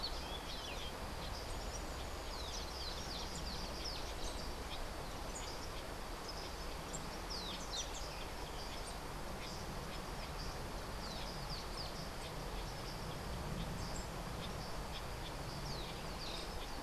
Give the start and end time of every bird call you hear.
0.0s-2.2s: Rufous-breasted Wren (Pheugopedius rutilus)
2.2s-4.9s: Social Flycatcher (Myiozetetes similis)
7.3s-16.8s: Social Flycatcher (Myiozetetes similis)

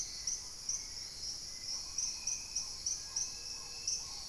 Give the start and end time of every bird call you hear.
0.0s-4.3s: Hauxwell's Thrush (Turdus hauxwelli)
1.6s-4.3s: Black-tailed Trogon (Trogon melanurus)
2.9s-3.9s: Little Tinamou (Crypturellus soui)
3.3s-4.1s: Gray-fronted Dove (Leptotila rufaxilla)

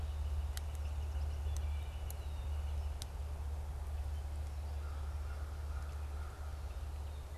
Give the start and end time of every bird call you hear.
0.0s-3.2s: Northern Flicker (Colaptes auratus)
0.8s-1.8s: Yellow Warbler (Setophaga petechia)
2.1s-2.7s: Red-winged Blackbird (Agelaius phoeniceus)
4.5s-6.9s: American Crow (Corvus brachyrhynchos)

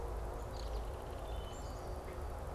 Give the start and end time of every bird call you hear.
0.3s-2.2s: Belted Kingfisher (Megaceryle alcyon)
1.2s-2.1s: Wood Thrush (Hylocichla mustelina)
1.5s-1.9s: Black-capped Chickadee (Poecile atricapillus)

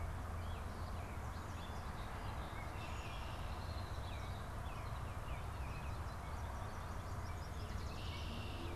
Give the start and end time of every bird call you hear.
0.0s-8.8s: American Robin (Turdus migratorius)
2.4s-4.5s: Red-winged Blackbird (Agelaius phoeniceus)
7.4s-8.8s: Red-winged Blackbird (Agelaius phoeniceus)

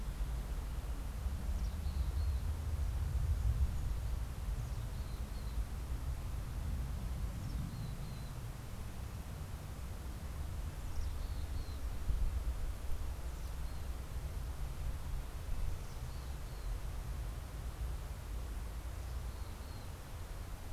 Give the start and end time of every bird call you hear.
0.0s-20.7s: Mountain Chickadee (Poecile gambeli)
8.0s-17.3s: Red-breasted Nuthatch (Sitta canadensis)

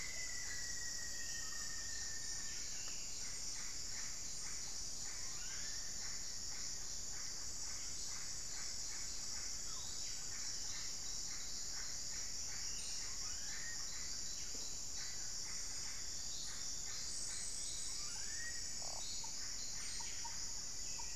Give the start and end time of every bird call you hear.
0.0s-2.9s: Rufous-fronted Antthrush (Formicarius rufifrons)
0.0s-21.2s: Yellow-rumped Cacique (Cacicus cela)
5.0s-6.2s: Black-faced Cotinga (Conioptilon mcilhennyi)
13.0s-18.8s: Black-faced Cotinga (Conioptilon mcilhennyi)

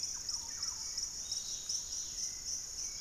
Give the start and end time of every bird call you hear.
0.0s-1.4s: Thrush-like Wren (Campylorhynchus turdinus)
0.0s-3.0s: Dusky-capped Greenlet (Pachysylvia hypoxantha)
0.0s-3.0s: Hauxwell's Thrush (Turdus hauxwelli)
0.0s-3.0s: Piratic Flycatcher (Legatus leucophaius)

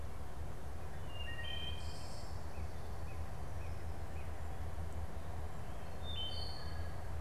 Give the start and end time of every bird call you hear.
0.9s-2.4s: Wood Thrush (Hylocichla mustelina)
2.4s-4.4s: Northern Cardinal (Cardinalis cardinalis)
5.7s-7.1s: Wood Thrush (Hylocichla mustelina)

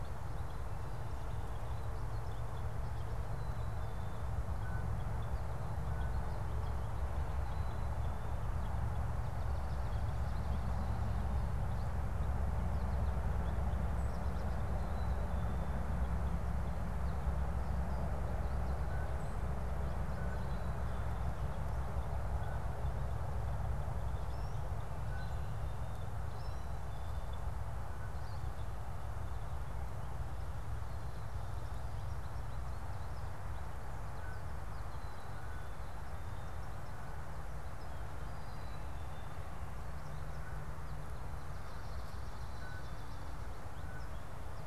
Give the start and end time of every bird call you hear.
0.0s-10.8s: Purple Finch (Haemorhous purpureus)
18.4s-28.2s: Blue Jay (Cyanocitta cristata)
21.3s-28.1s: Purple Finch (Haemorhous purpureus)
24.0s-28.7s: American Goldfinch (Spinus tristis)
34.0s-43.0s: Blue Jay (Cyanocitta cristata)

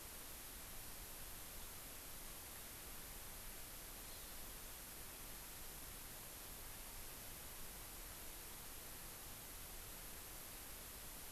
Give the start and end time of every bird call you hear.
4.0s-4.3s: Hawaii Amakihi (Chlorodrepanis virens)

